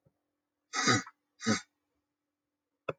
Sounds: Sniff